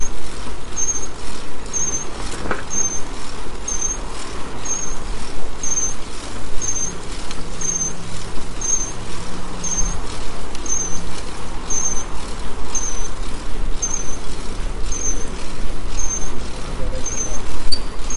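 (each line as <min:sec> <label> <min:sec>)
0:00.0 Several people are talking in the background while riding bikes. 0:18.2
0:00.0 The bike wheel makes a persistent squeak while pedaling. 0:18.2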